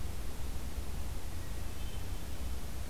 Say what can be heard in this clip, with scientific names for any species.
Catharus guttatus